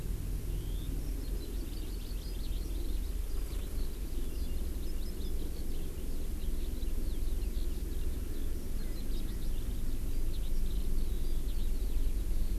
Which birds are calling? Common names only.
Eurasian Skylark, Hawaii Amakihi, Erckel's Francolin